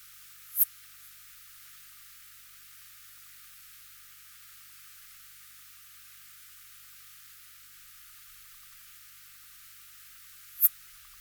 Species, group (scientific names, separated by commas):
Poecilimon affinis, Orthoptera